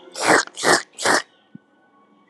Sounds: Sniff